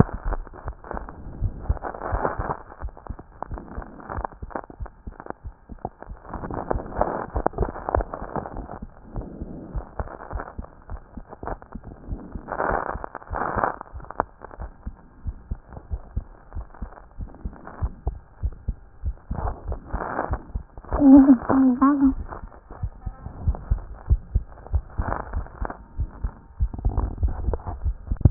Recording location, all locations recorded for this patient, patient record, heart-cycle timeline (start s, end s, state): aortic valve (AV)
aortic valve (AV)+pulmonary valve (PV)+tricuspid valve (TV)+mitral valve (MV)
#Age: Child
#Sex: Male
#Height: 129.0 cm
#Weight: 24.6 kg
#Pregnancy status: False
#Murmur: Absent
#Murmur locations: nan
#Most audible location: nan
#Systolic murmur timing: nan
#Systolic murmur shape: nan
#Systolic murmur grading: nan
#Systolic murmur pitch: nan
#Systolic murmur quality: nan
#Diastolic murmur timing: nan
#Diastolic murmur shape: nan
#Diastolic murmur grading: nan
#Diastolic murmur pitch: nan
#Diastolic murmur quality: nan
#Outcome: Abnormal
#Campaign: 2014 screening campaign
0.00	14.44	unannotated
14.44	14.58	diastole
14.58	14.70	S1
14.70	14.86	systole
14.86	14.96	S2
14.96	15.24	diastole
15.24	15.36	S1
15.36	15.50	systole
15.50	15.60	S2
15.60	15.90	diastole
15.90	16.02	S1
16.02	16.16	systole
16.16	16.26	S2
16.26	16.54	diastole
16.54	16.66	S1
16.66	16.82	systole
16.82	16.92	S2
16.92	17.18	diastole
17.18	17.30	S1
17.30	17.44	systole
17.44	17.54	S2
17.54	17.80	diastole
17.80	17.92	S1
17.92	18.06	systole
18.06	18.16	S2
18.16	18.42	diastole
18.42	18.54	S1
18.54	18.68	systole
18.68	18.78	S2
18.78	19.04	diastole
19.04	19.16	S1
19.16	19.32	systole
19.32	19.41	S2
19.41	19.68	diastole
19.68	28.30	unannotated